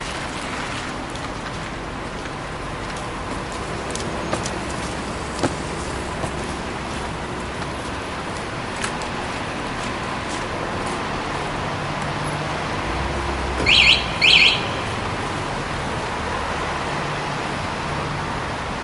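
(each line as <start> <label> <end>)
0.0 Traffic noise from a near distance gradually increasing in loudness. 18.8
8.9 Someone is walking silently with a faint sucking sound in the near distance. 11.5
12.5 A dull, bassy sound increasing in volume. 13.7
13.6 A car alarm chirps loudly twice nearby. 14.6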